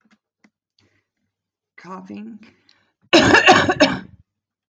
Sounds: Cough